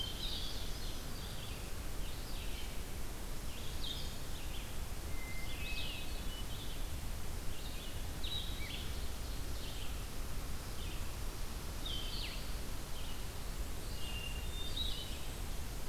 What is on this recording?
Hermit Thrush, Ovenbird, Red-eyed Vireo